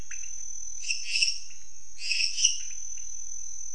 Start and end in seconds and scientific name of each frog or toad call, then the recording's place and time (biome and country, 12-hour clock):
0.0	3.5	Leptodactylus podicipinus
0.8	2.9	Dendropsophus minutus
Cerrado, Brazil, 10:15pm